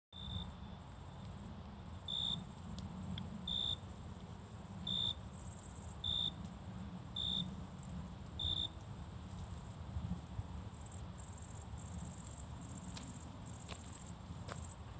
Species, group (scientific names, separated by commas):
Oecanthus pellucens, Orthoptera